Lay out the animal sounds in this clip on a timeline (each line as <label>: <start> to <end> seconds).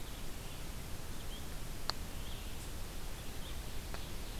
Red-eyed Vireo (Vireo olivaceus): 0.0 to 4.4 seconds